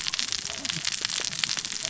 {"label": "biophony, cascading saw", "recorder": "SoundTrap 600 or HydroMoth"}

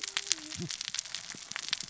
{"label": "biophony, cascading saw", "recorder": "SoundTrap 600 or HydroMoth"}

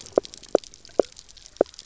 {"label": "biophony, knock croak", "recorder": "SoundTrap 300"}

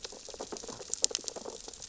{"label": "biophony, sea urchins (Echinidae)", "recorder": "SoundTrap 600 or HydroMoth"}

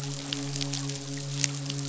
{"label": "biophony, midshipman", "recorder": "SoundTrap 500"}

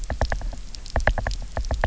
{"label": "biophony, knock", "recorder": "SoundTrap 300"}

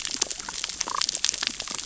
{"label": "biophony, damselfish", "recorder": "SoundTrap 600 or HydroMoth"}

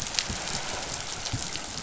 {"label": "biophony, chatter", "recorder": "SoundTrap 500"}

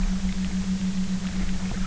{"label": "anthrophony, boat engine", "recorder": "SoundTrap 300"}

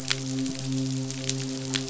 {"label": "biophony, midshipman", "recorder": "SoundTrap 500"}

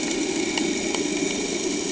{"label": "anthrophony, boat engine", "recorder": "HydroMoth"}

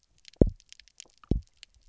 {"label": "biophony, double pulse", "recorder": "SoundTrap 300"}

